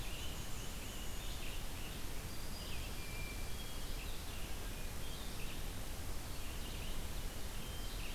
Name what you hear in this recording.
Black-and-white Warbler, Great Crested Flycatcher, Red-eyed Vireo, Black-throated Green Warbler, Hermit Thrush